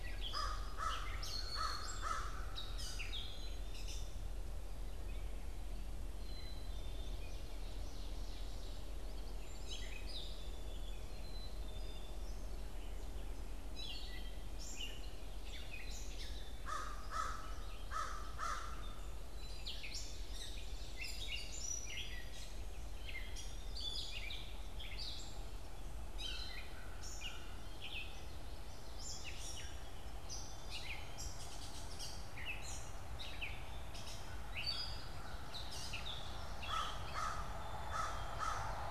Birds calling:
American Crow (Corvus brachyrhynchos)
Gray Catbird (Dumetella carolinensis)
Ovenbird (Seiurus aurocapilla)
Black-capped Chickadee (Poecile atricapillus)

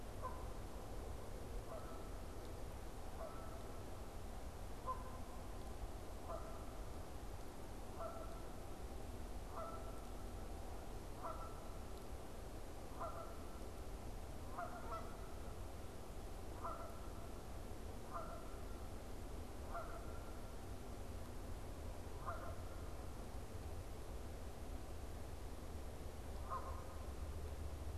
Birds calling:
Canada Goose (Branta canadensis)

